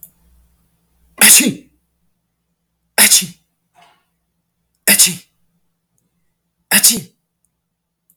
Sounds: Sneeze